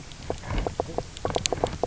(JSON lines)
{"label": "biophony, knock croak", "recorder": "SoundTrap 300"}